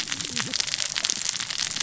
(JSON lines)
{"label": "biophony, cascading saw", "recorder": "SoundTrap 600 or HydroMoth"}